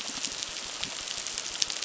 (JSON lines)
{"label": "biophony, crackle", "recorder": "SoundTrap 600"}